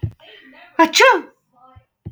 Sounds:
Sneeze